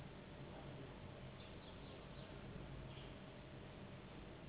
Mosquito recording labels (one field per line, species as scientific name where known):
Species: Anopheles gambiae s.s.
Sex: female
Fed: unfed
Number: one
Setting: insect culture